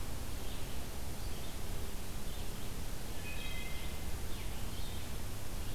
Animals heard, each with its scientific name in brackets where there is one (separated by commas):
Red-eyed Vireo (Vireo olivaceus), Wood Thrush (Hylocichla mustelina)